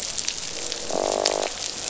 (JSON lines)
{"label": "biophony, croak", "recorder": "SoundTrap 500"}